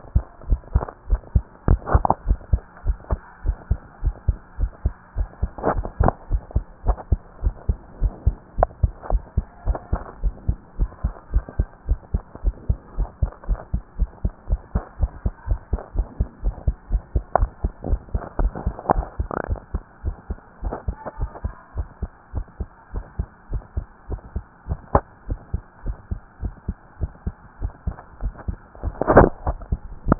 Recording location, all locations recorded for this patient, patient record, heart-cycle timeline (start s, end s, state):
tricuspid valve (TV)
aortic valve (AV)+pulmonary valve (PV)+tricuspid valve (TV)+mitral valve (MV)
#Age: Child
#Sex: Female
#Height: 124.0 cm
#Weight: 21.3 kg
#Pregnancy status: False
#Murmur: Absent
#Murmur locations: nan
#Most audible location: nan
#Systolic murmur timing: nan
#Systolic murmur shape: nan
#Systolic murmur grading: nan
#Systolic murmur pitch: nan
#Systolic murmur quality: nan
#Diastolic murmur timing: nan
#Diastolic murmur shape: nan
#Diastolic murmur grading: nan
#Diastolic murmur pitch: nan
#Diastolic murmur quality: nan
#Outcome: Normal
#Campaign: 2015 screening campaign
0.00	9.08	unannotated
9.08	9.22	S1
9.22	9.34	systole
9.34	9.46	S2
9.46	9.66	diastole
9.66	9.80	S1
9.80	9.90	systole
9.90	10.00	S2
10.00	10.20	diastole
10.20	10.34	S1
10.34	10.46	systole
10.46	10.56	S2
10.56	10.78	diastole
10.78	10.90	S1
10.90	11.02	systole
11.02	11.12	S2
11.12	11.32	diastole
11.32	11.44	S1
11.44	11.56	systole
11.56	11.68	S2
11.68	11.88	diastole
11.88	12.00	S1
12.00	12.12	systole
12.12	12.22	S2
12.22	12.44	diastole
12.44	12.56	S1
12.56	12.68	systole
12.68	12.78	S2
12.78	12.96	diastole
12.96	13.10	S1
13.10	13.20	systole
13.20	13.30	S2
13.30	13.48	diastole
13.48	13.60	S1
13.60	13.72	systole
13.72	13.82	S2
13.82	14.00	diastole
14.00	14.10	S1
14.10	14.22	systole
14.22	14.32	S2
14.32	14.50	diastole
14.50	14.60	S1
14.60	14.74	systole
14.74	14.84	S2
14.84	15.00	diastole
15.00	15.12	S1
15.12	15.24	systole
15.24	15.32	S2
15.32	15.48	diastole
15.48	15.60	S1
15.60	15.70	systole
15.70	15.80	S2
15.80	15.96	diastole
15.96	16.08	S1
16.08	16.18	systole
16.18	16.28	S2
16.28	16.44	diastole
16.44	16.56	S1
16.56	16.66	systole
16.66	16.76	S2
16.76	16.92	diastole
16.92	17.02	S1
17.02	17.14	systole
17.14	17.24	S2
17.24	17.40	diastole
17.40	17.50	S1
17.50	17.62	systole
17.62	17.70	S2
17.70	17.86	diastole
17.86	18.00	S1
18.00	18.12	systole
18.12	18.22	S2
18.22	18.40	diastole
18.40	18.54	S1
18.54	18.64	systole
18.64	18.74	S2
18.74	18.90	diastole
18.90	19.06	S1
19.06	19.18	systole
19.18	19.28	S2
19.28	19.50	diastole
19.50	19.60	S1
19.60	19.72	systole
19.72	19.82	S2
19.82	20.04	diastole
20.04	20.16	S1
20.16	20.28	systole
20.28	20.38	S2
20.38	20.64	diastole
20.64	20.78	S1
20.78	20.88	systole
20.88	20.98	S2
20.98	21.20	diastole
21.20	21.32	S1
21.32	21.44	systole
21.44	21.54	S2
21.54	21.76	diastole
21.76	21.88	S1
21.88	22.02	systole
22.02	22.12	S2
22.12	22.34	diastole
22.34	22.44	S1
22.44	22.60	systole
22.60	22.70	S2
22.70	22.94	diastole
22.94	23.04	S1
23.04	23.18	systole
23.18	23.28	S2
23.28	23.50	diastole
23.50	23.62	S1
23.62	23.76	systole
23.76	23.86	S2
23.86	24.10	diastole
24.10	24.20	S1
24.20	24.34	systole
24.34	24.44	S2
24.44	24.68	diastole
24.68	24.78	S1
24.78	24.90	systole
24.90	25.04	S2
25.04	25.28	diastole
25.28	25.40	S1
25.40	25.52	systole
25.52	25.64	S2
25.64	25.86	diastole
25.86	25.98	S1
25.98	26.10	systole
26.10	26.20	S2
26.20	26.42	diastole
26.42	26.54	S1
26.54	26.68	systole
26.68	26.78	S2
26.78	27.02	diastole
27.02	27.12	S1
27.12	27.26	systole
27.26	27.36	S2
27.36	27.60	diastole
27.60	27.72	S1
27.72	27.86	systole
27.86	27.96	S2
27.96	28.20	diastole
28.20	28.34	S1
28.34	28.46	systole
28.46	28.58	S2
28.58	28.75	diastole
28.75	30.19	unannotated